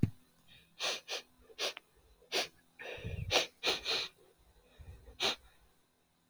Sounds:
Sniff